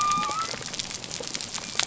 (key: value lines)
label: biophony
recorder: SoundTrap 300